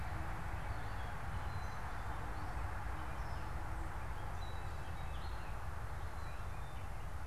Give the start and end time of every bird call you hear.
1.3s-5.5s: Black-capped Chickadee (Poecile atricapillus)

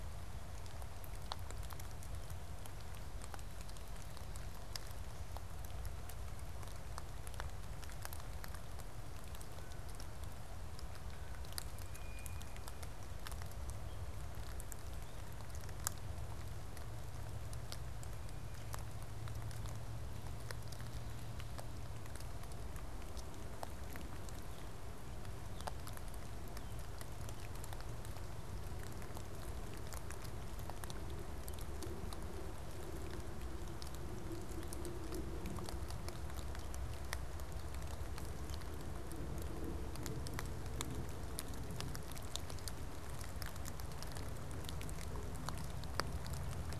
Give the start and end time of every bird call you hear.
9.1s-12.8s: Blue Jay (Cyanocitta cristata)

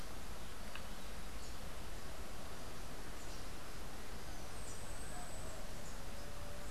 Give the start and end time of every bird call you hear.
4.4s-6.7s: Yellow-faced Grassquit (Tiaris olivaceus)

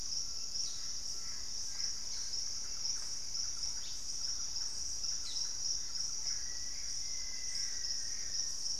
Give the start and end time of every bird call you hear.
0.1s-1.7s: Collared Trogon (Trogon collaris)
0.6s-8.7s: Gray Antbird (Cercomacra cinerascens)
1.0s-8.4s: Thrush-like Wren (Campylorhynchus turdinus)
3.7s-4.1s: Ash-throated Gnateater (Conopophaga peruviana)
6.1s-8.6s: Black-faced Antthrush (Formicarius analis)

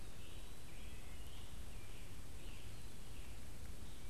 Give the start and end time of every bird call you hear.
0.0s-0.8s: Eastern Wood-Pewee (Contopus virens)
0.0s-4.1s: Scarlet Tanager (Piranga olivacea)
0.6s-1.3s: Wood Thrush (Hylocichla mustelina)
2.3s-3.1s: Eastern Wood-Pewee (Contopus virens)

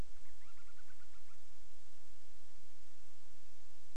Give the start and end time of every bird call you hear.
0.1s-1.5s: Band-rumped Storm-Petrel (Hydrobates castro)

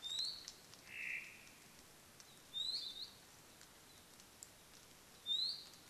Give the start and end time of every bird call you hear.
0.0s-0.6s: Iiwi (Drepanis coccinea)
0.8s-1.6s: Omao (Myadestes obscurus)
2.5s-3.0s: Iiwi (Drepanis coccinea)
2.8s-3.2s: Hawaii Akepa (Loxops coccineus)
5.2s-5.8s: Iiwi (Drepanis coccinea)

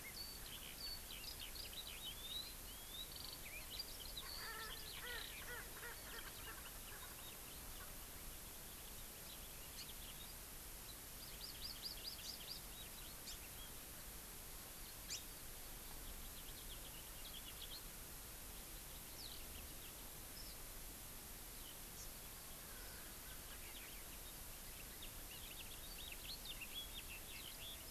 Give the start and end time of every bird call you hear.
0.0s-5.5s: Eurasian Skylark (Alauda arvensis)
4.2s-7.4s: Erckel's Francolin (Pternistis erckelii)
9.7s-9.9s: Hawaii Amakihi (Chlorodrepanis virens)
11.1s-12.7s: Hawaii Amakihi (Chlorodrepanis virens)
12.3s-13.8s: House Finch (Haemorhous mexicanus)
13.2s-13.4s: Hawaii Amakihi (Chlorodrepanis virens)
15.0s-15.3s: Hawaii Amakihi (Chlorodrepanis virens)
16.0s-17.9s: House Finch (Haemorhous mexicanus)
21.9s-22.1s: Hawaii Amakihi (Chlorodrepanis virens)
24.7s-27.9s: House Finch (Haemorhous mexicanus)

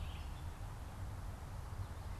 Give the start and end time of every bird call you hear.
0.0s-2.2s: Red-eyed Vireo (Vireo olivaceus)

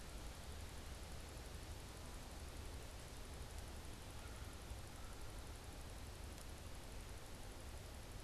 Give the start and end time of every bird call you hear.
4.0s-5.6s: American Crow (Corvus brachyrhynchos)

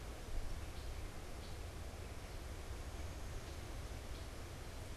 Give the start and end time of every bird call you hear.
0.0s-5.0s: Common Grackle (Quiscalus quiscula)

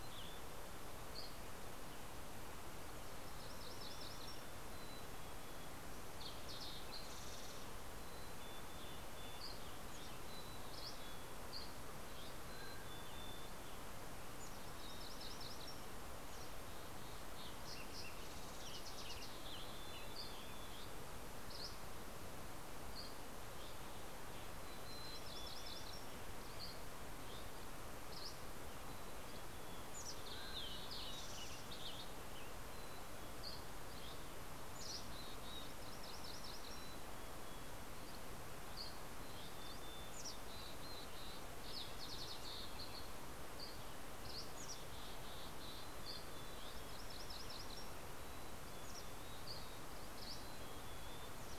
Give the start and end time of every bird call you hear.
0.0s-0.9s: Mountain Chickadee (Poecile gambeli)
0.0s-0.9s: Western Tanager (Piranga ludoviciana)
0.5s-1.7s: Dusky Flycatcher (Empidonax oberholseri)
2.8s-4.6s: MacGillivray's Warbler (Geothlypis tolmiei)
4.5s-5.8s: Mountain Chickadee (Poecile gambeli)
4.7s-8.2s: Fox Sparrow (Passerella iliaca)
7.9s-11.6s: Mountain Chickadee (Poecile gambeli)
8.5s-14.3s: Western Tanager (Piranga ludoviciana)
8.9s-12.4s: Dusky Flycatcher (Empidonax oberholseri)
12.0s-13.3s: Mountain Quail (Oreortyx pictus)
12.4s-13.8s: Mountain Chickadee (Poecile gambeli)
14.4s-16.1s: MacGillivray's Warbler (Geothlypis tolmiei)
16.2s-17.3s: Mountain Chickadee (Poecile gambeli)
16.3s-20.3s: Fox Sparrow (Passerella iliaca)
17.3s-20.7s: Western Tanager (Piranga ludoviciana)
19.3s-20.9s: Mountain Chickadee (Poecile gambeli)
21.2s-23.8s: Dusky Flycatcher (Empidonax oberholseri)
24.2s-26.3s: MacGillivray's Warbler (Geothlypis tolmiei)
24.6s-26.1s: Mountain Chickadee (Poecile gambeli)
26.0s-28.8s: Dusky Flycatcher (Empidonax oberholseri)
28.6s-30.8s: Mountain Chickadee (Poecile gambeli)
29.8s-30.8s: Mountain Quail (Oreortyx pictus)
32.5s-33.7s: Mountain Chickadee (Poecile gambeli)
32.9s-34.5s: Dusky Flycatcher (Empidonax oberholseri)
34.4s-35.6s: Mountain Chickadee (Poecile gambeli)
35.5s-37.4s: MacGillivray's Warbler (Geothlypis tolmiei)
36.4s-38.1s: Mountain Chickadee (Poecile gambeli)
38.4s-39.7s: Dusky Flycatcher (Empidonax oberholseri)
38.8s-41.2s: Mountain Chickadee (Poecile gambeli)
40.6s-43.4s: Fox Sparrow (Passerella iliaca)
43.1s-44.8s: Dusky Flycatcher (Empidonax oberholseri)
44.4s-51.5s: Mountain Chickadee (Poecile gambeli)
46.3s-48.0s: MacGillivray's Warbler (Geothlypis tolmiei)
48.2s-50.8s: Dusky Flycatcher (Empidonax oberholseri)

